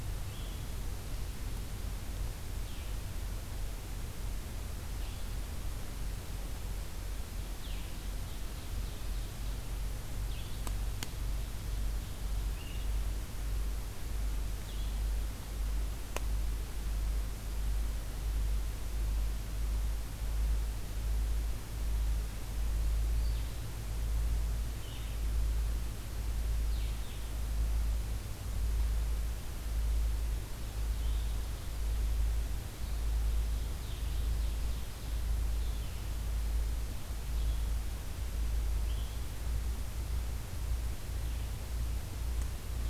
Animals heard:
Blue-headed Vireo (Vireo solitarius), Ovenbird (Seiurus aurocapilla)

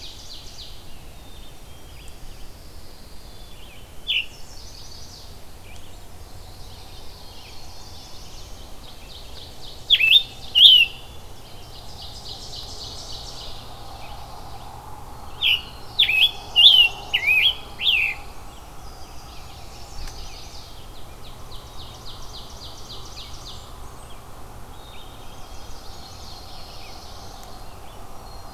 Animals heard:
Black-throated Green Warbler (Setophaga virens), Mourning Warbler (Geothlypis philadelphia), Chestnut-sided Warbler (Setophaga pensylvanica), Black-throated Blue Warbler (Setophaga caerulescens), Black-capped Chickadee (Poecile atricapillus), Pine Warbler (Setophaga pinus), Blackburnian Warbler (Setophaga fusca), Red-eyed Vireo (Vireo olivaceus), Ovenbird (Seiurus aurocapilla), Scarlet Tanager (Piranga olivacea), Brown Creeper (Certhia americana)

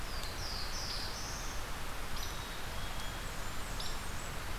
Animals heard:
Blackburnian Warbler (Setophaga fusca), Black-capped Chickadee (Poecile atricapillus), Hairy Woodpecker (Dryobates villosus), Black-throated Blue Warbler (Setophaga caerulescens)

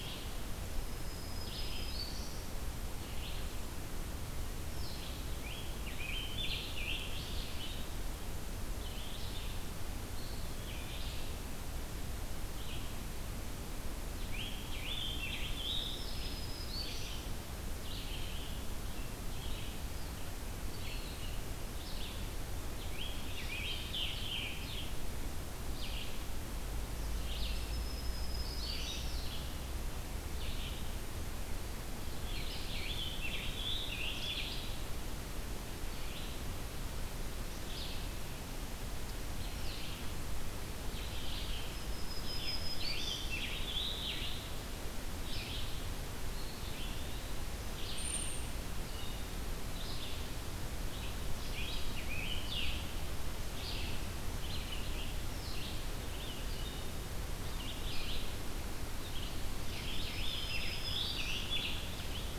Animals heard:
Scarlet Tanager (Piranga olivacea), Blue-headed Vireo (Vireo solitarius), Eastern Wood-Pewee (Contopus virens), Black-throated Green Warbler (Setophaga virens)

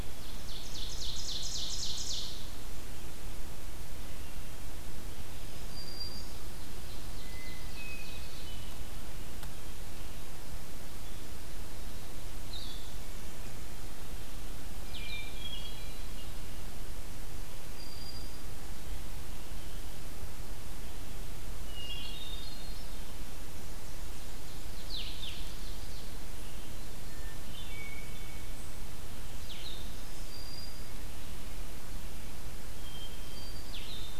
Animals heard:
Hermit Thrush (Catharus guttatus), Ovenbird (Seiurus aurocapilla), Blue-headed Vireo (Vireo solitarius), Black-throated Green Warbler (Setophaga virens)

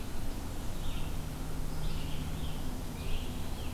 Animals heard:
Red-eyed Vireo (Vireo olivaceus), Scarlet Tanager (Piranga olivacea)

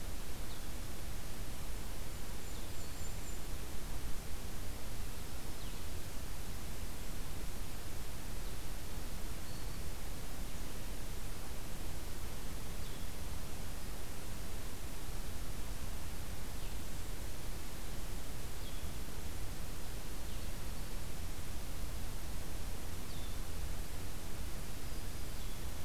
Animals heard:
Golden-crowned Kinglet (Regulus satrapa), Blue-headed Vireo (Vireo solitarius)

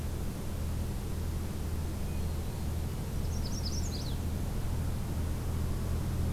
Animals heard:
Magnolia Warbler (Setophaga magnolia), Hermit Thrush (Catharus guttatus)

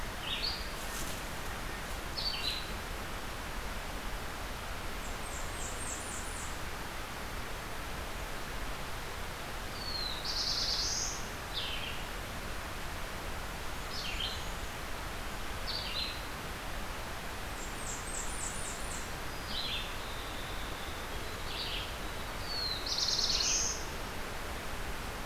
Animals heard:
Red-eyed Vireo (Vireo olivaceus), Blackburnian Warbler (Setophaga fusca), Black-throated Blue Warbler (Setophaga caerulescens), Winter Wren (Troglodytes hiemalis), Black-and-white Warbler (Mniotilta varia)

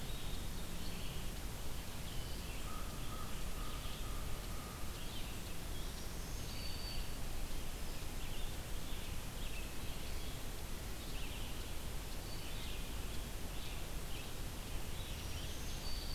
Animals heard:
Black-throated Green Warbler (Setophaga virens), American Crow (Corvus brachyrhynchos), Red-eyed Vireo (Vireo olivaceus)

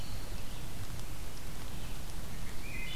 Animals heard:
Wood Thrush (Hylocichla mustelina)

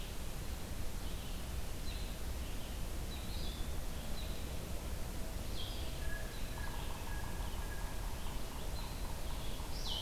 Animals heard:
Yellow-bellied Sapsucker (Sphyrapicus varius), Blue-headed Vireo (Vireo solitarius)

